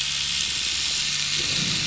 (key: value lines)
label: anthrophony, boat engine
recorder: SoundTrap 500